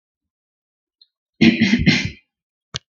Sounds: Throat clearing